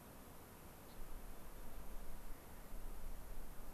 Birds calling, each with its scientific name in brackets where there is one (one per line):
Gray-crowned Rosy-Finch (Leucosticte tephrocotis)